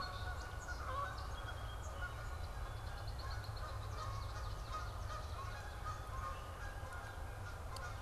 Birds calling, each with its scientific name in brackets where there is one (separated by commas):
Red-winged Blackbird (Agelaius phoeniceus), Swamp Sparrow (Melospiza georgiana), Song Sparrow (Melospiza melodia), Canada Goose (Branta canadensis)